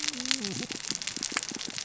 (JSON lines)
{"label": "biophony, cascading saw", "recorder": "SoundTrap 600 or HydroMoth"}